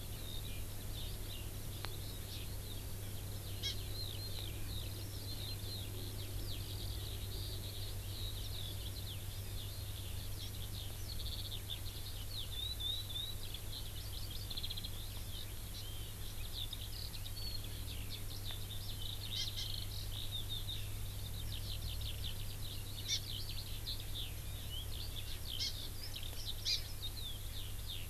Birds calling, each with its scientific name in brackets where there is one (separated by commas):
Eurasian Skylark (Alauda arvensis), Hawaii Amakihi (Chlorodrepanis virens)